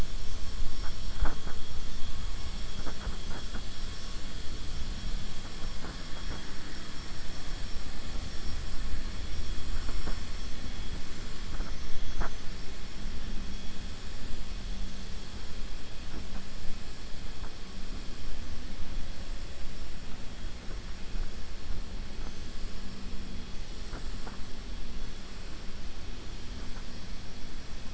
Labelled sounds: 26.5	27.1	killer whale, 4.9 to 6.2 kHz

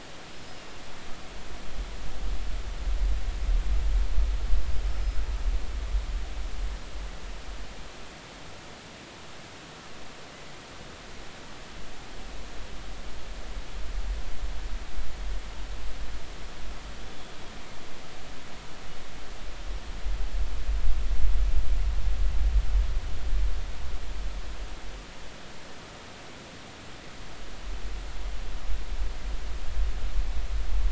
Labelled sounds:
0.3	0.6	killer whale, northern resident, 5.0 to 5.2 kHz
17.0	17.3	killer whale, northern resident, 3.3 to 3.5 kHz

